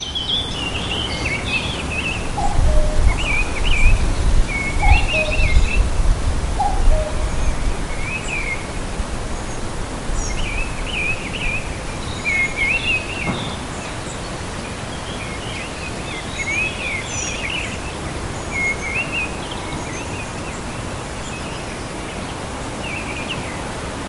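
Birds sing repeatedly with background noise. 0:00.0 - 0:02.3
A distinct bird is singing outside with background noise. 0:02.3 - 0:03.1
Birds are repeatedly singing with background noise. 0:03.1 - 0:04.7
A distinct bird is singing outside with background noise. 0:04.7 - 0:05.3
Birds are repeatedly singing with background noise. 0:05.4 - 0:06.4
A distinct bird is singing outside with background noise. 0:06.4 - 0:07.4
Birds sing repeatedly with background noise. 0:07.4 - 0:24.1

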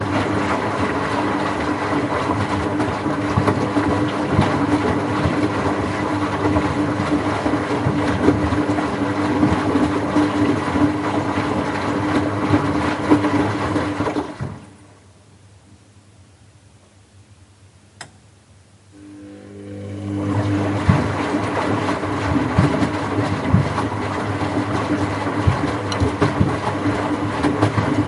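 A washing machine runs loudly and then fades away. 0:00.0 - 0:14.9
A washing machine is turned on and operates with increasing loudness. 0:18.0 - 0:28.1

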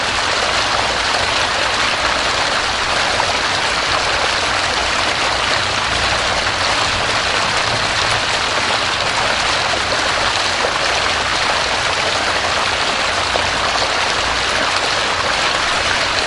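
Water raining into a pool. 0:00.0 - 0:16.3

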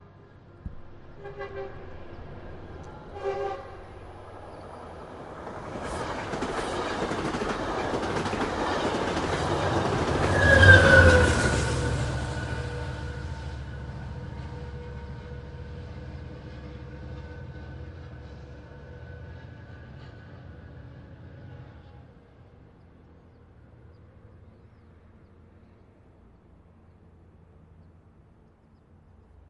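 A train horn sounds. 0:01.2 - 0:01.7
A train horn sounds. 0:03.1 - 0:03.7
The repeated clickety-clack of a train passing nearby. 0:05.7 - 0:13.8
A train whooshes by nearby. 0:10.2 - 0:11.6

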